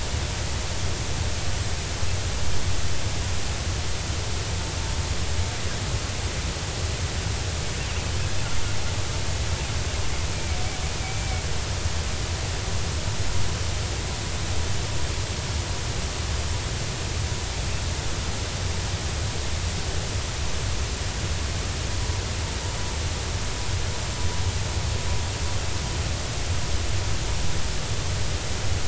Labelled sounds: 11.0	11.4	killer whale, 2.1 to 2.4 kHz

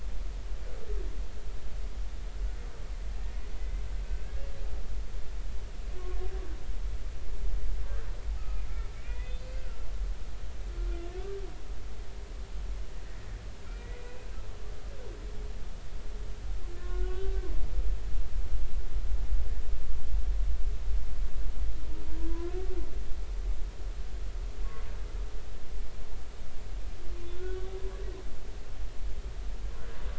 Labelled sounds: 4.0	4.3	humpback whale, 2.5 to 2.7 kHz
8.4	9.4	humpback whale, 1.2 to 3.7 kHz
11.2	11.4	humpback whale, 1.4 to 1.6 kHz
13.7	13.9	humpback whale, 2.3 to 2.5 kHz
16.8	17.5	humpback whale, 1.4 to 3.1 kHz
22.2	22.5	humpback whale, 0.96 to 1.1 kHz
27.3	27.7	humpback whale, 1.4 to 1.5 kHz

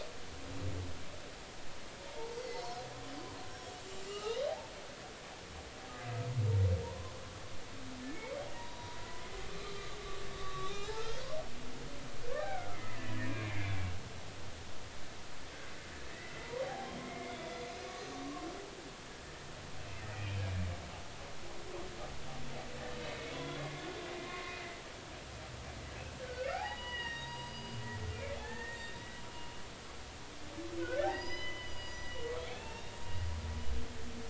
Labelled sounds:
2.1	2.4	humpback whale, 0.83 to 0.99 kHz
3.5	3.8	humpback whale, 5.4 to 5.6 kHz
4.1	4.4	humpback whale, 1.2 to 3.0 kHz
6.8	7.1	humpback whale, 0.90 to 1.1 kHz
8.1	9.0	humpback whale, 0.90 to 3.9 kHz
9.5	10.0	humpback whale, 1.1 to 1.2 kHz
10.3	10.9	humpback whale, 1.1 to 4.1 kHz
12.4	13.9	humpback whale, 1.2 to 2.4 kHz
16.1	17.4	humpback whale, 0.80 to 2.2 kHz
18.2	18.5	humpback whale, 1.0 to 1.2 kHz
20.1	20.4	humpback whale, 2.3 to 2.6 kHz
23.3	23.8	humpback whale, 0.96 to 2.2 kHz
24.2	24.6	humpback whale, 1.0 to 3.5 kHz
26.2	27.8	humpback whale, 0.80 to 4.9 kHz
28.4	29.0	humpback whale, 0.80 to 3.8 kHz
30.8	32.9	humpback whale, 0.80 to 6.0 kHz

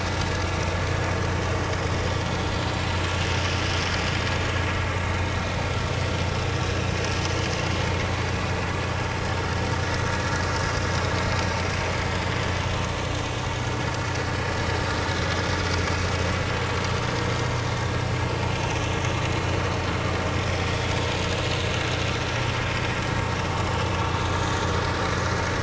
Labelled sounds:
0.4	0.8	vessel noise, 5.7 to 5.8 kHz
14.2	15.0	vessel noise, 4.3 to 5.5 kHz

